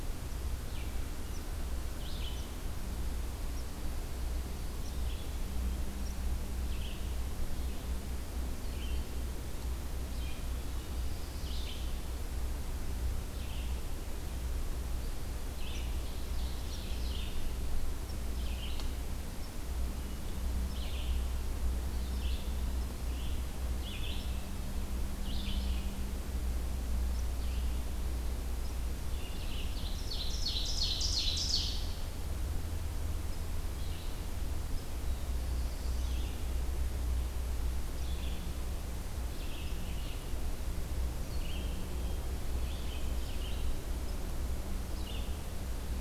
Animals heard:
Red-eyed Vireo (Vireo olivaceus)
Ovenbird (Seiurus aurocapilla)
Black-throated Blue Warbler (Setophaga caerulescens)

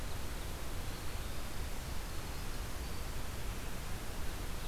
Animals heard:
Winter Wren (Troglodytes hiemalis)

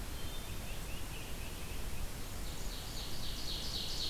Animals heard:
Tufted Titmouse (Baeolophus bicolor)
Ovenbird (Seiurus aurocapilla)

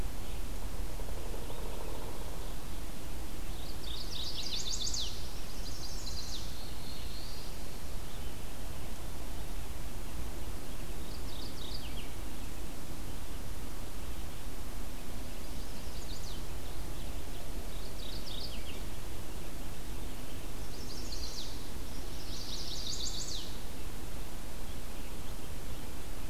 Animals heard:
Downy Woodpecker (Dryobates pubescens)
Chestnut-sided Warbler (Setophaga pensylvanica)
Black-throated Blue Warbler (Setophaga caerulescens)
Mourning Warbler (Geothlypis philadelphia)
Red-eyed Vireo (Vireo olivaceus)

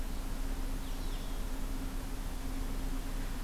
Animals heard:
Blue-headed Vireo (Vireo solitarius)

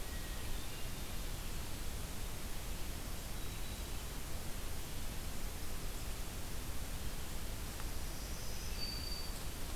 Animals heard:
Hermit Thrush (Catharus guttatus)
Black-throated Green Warbler (Setophaga virens)

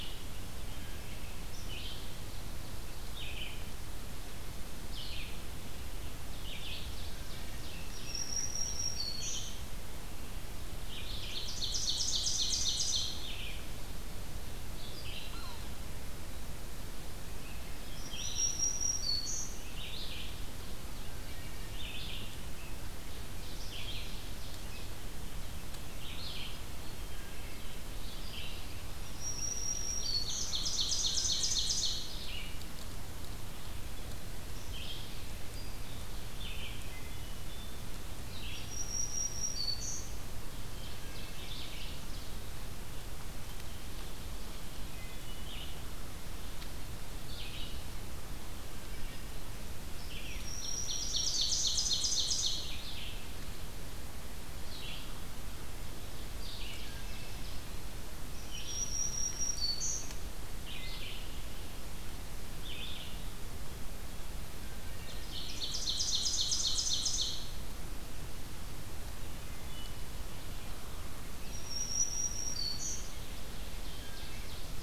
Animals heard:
Wood Thrush (Hylocichla mustelina)
Black-throated Green Warbler (Setophaga virens)
Ovenbird (Seiurus aurocapilla)
Red-eyed Vireo (Vireo olivaceus)
Yellow-bellied Sapsucker (Sphyrapicus varius)

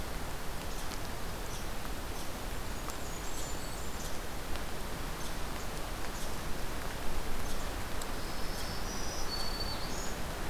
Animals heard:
Blackburnian Warbler (Setophaga fusca)
Black-throated Green Warbler (Setophaga virens)
Red Squirrel (Tamiasciurus hudsonicus)

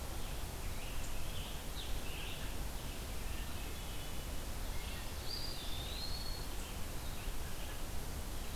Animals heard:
Scarlet Tanager (Piranga olivacea)
Eastern Wood-Pewee (Contopus virens)
Hermit Thrush (Catharus guttatus)
Red-eyed Vireo (Vireo olivaceus)

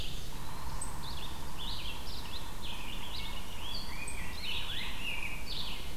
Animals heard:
unidentified call
Rose-breasted Grosbeak (Pheucticus ludovicianus)
Yellow-bellied Sapsucker (Sphyrapicus varius)
Red-eyed Vireo (Vireo olivaceus)
Eastern Wood-Pewee (Contopus virens)

